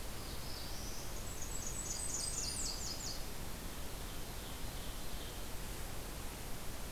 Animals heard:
Blackburnian Warbler (Setophaga fusca), Black-throated Blue Warbler (Setophaga caerulescens), Nashville Warbler (Leiothlypis ruficapilla), Ovenbird (Seiurus aurocapilla)

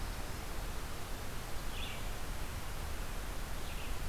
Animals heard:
Red-eyed Vireo (Vireo olivaceus)

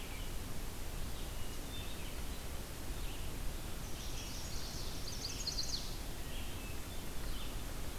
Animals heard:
Chestnut-sided Warbler (Setophaga pensylvanica), Red-eyed Vireo (Vireo olivaceus)

